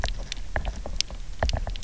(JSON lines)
{"label": "biophony, knock", "recorder": "SoundTrap 300"}